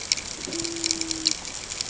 {"label": "ambient", "recorder": "HydroMoth"}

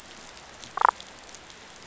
{"label": "biophony, damselfish", "recorder": "SoundTrap 500"}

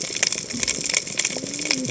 {"label": "biophony, cascading saw", "recorder": "HydroMoth"}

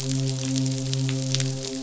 {"label": "biophony, midshipman", "recorder": "SoundTrap 500"}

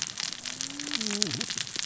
{"label": "biophony, cascading saw", "recorder": "SoundTrap 600 or HydroMoth"}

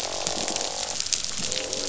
{"label": "biophony, croak", "recorder": "SoundTrap 500"}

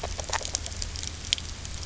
{"label": "biophony, grazing", "recorder": "SoundTrap 300"}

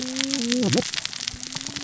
{"label": "biophony, cascading saw", "recorder": "SoundTrap 600 or HydroMoth"}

